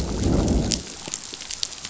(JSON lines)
{"label": "biophony, growl", "recorder": "SoundTrap 500"}